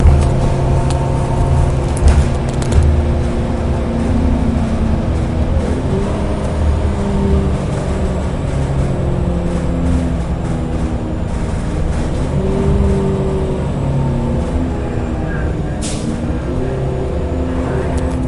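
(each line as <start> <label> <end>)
0.0 A public transportation bus is driving. 18.3
15.7 Air is being ejected sharply. 16.3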